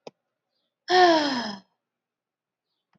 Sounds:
Sigh